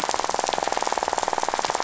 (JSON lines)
{"label": "biophony, rattle", "recorder": "SoundTrap 500"}